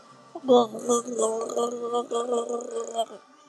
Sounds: Throat clearing